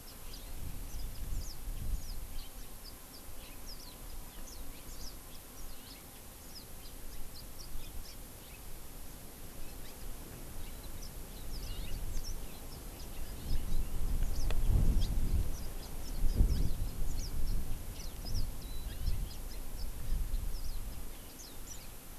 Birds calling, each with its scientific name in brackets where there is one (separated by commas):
Warbling White-eye (Zosterops japonicus), Hawaii Amakihi (Chlorodrepanis virens), Yellow-fronted Canary (Crithagra mozambica), House Finch (Haemorhous mexicanus)